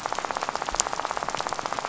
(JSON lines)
{"label": "biophony, rattle", "recorder": "SoundTrap 500"}